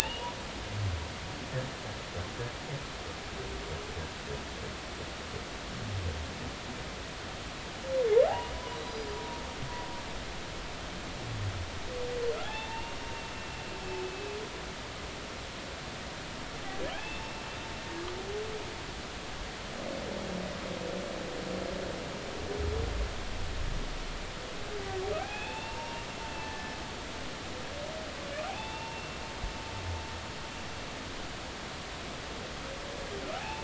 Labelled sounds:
0.0	0.3	humpback whale, 2.5 to 2.9 kHz
8.3	9.1	humpback whale, 0.80 to 5.0 kHz
12.4	13.0	humpback whale, 0.80 to 3.6 kHz
14.0	14.3	humpback whale, 2.6 to 2.7 kHz
16.9	17.2	humpback whale, 2.2 to 2.8 kHz
25.2	26.7	humpback whale, 0.80 to 3.6 kHz
28.5	29.1	humpback whale, 0.80 to 3.6 kHz
33.4	33.6	humpback whale, 0.80 to 0.96 kHz

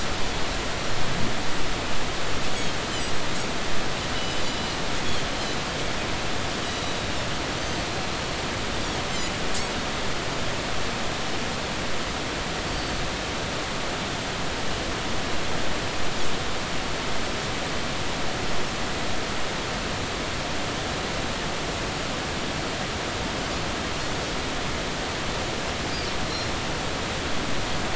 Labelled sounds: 2.5	3.1	Pacific white-sided dolphin, 2.8 to 6.8 kHz
4.1	4.5	Pacific white-sided dolphin, 2.9 to 5.2 kHz
6.6	7.1	Pacific white-sided dolphin, 3.7 to 5.9 kHz
12.7	13.0	Pacific white-sided dolphin, 4.4 to 4.7 kHz

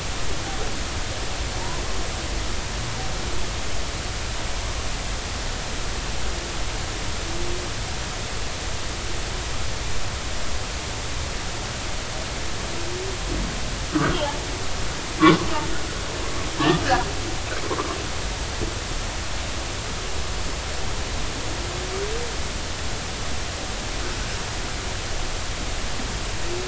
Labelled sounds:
13.9	14.2	humpback whale, 1.3 to 1.6 kHz
15.2	15.4	humpback whale, 0.96 to 1.2 kHz

